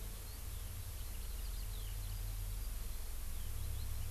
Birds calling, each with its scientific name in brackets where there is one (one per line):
Eurasian Skylark (Alauda arvensis)